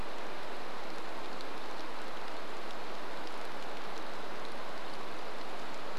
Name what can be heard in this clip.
rain